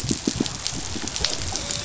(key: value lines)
label: biophony, dolphin
recorder: SoundTrap 500